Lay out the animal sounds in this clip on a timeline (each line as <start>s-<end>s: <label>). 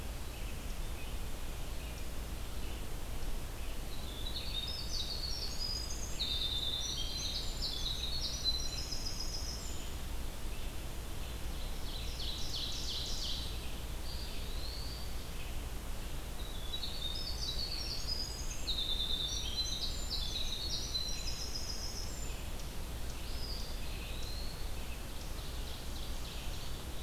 0.6s-27.0s: Red-eyed Vireo (Vireo olivaceus)
3.8s-10.0s: Winter Wren (Troglodytes hiemalis)
11.2s-13.8s: Ovenbird (Seiurus aurocapilla)
13.9s-15.2s: Eastern Wood-Pewee (Contopus virens)
16.2s-22.6s: Winter Wren (Troglodytes hiemalis)
23.1s-24.9s: Eastern Wood-Pewee (Contopus virens)
25.1s-27.0s: Ovenbird (Seiurus aurocapilla)